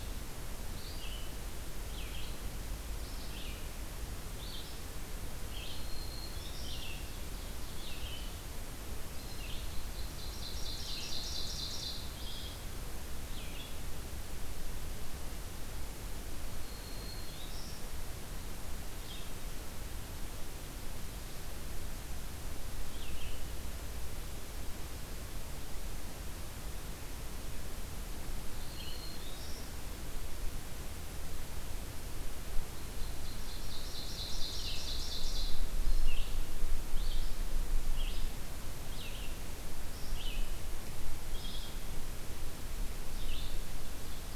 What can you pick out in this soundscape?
Red-eyed Vireo, Black-throated Green Warbler, Ovenbird